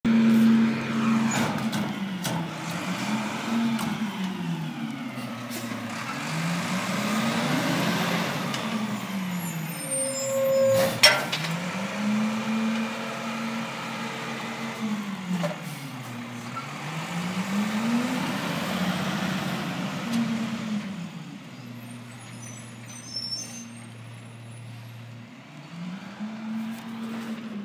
Is the man jogging?
no